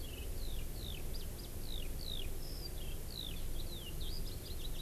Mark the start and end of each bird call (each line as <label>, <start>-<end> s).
Eurasian Skylark (Alauda arvensis), 0.0-4.8 s